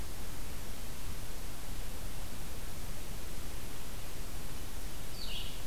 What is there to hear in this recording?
Red-eyed Vireo